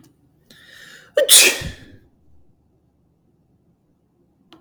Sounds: Sneeze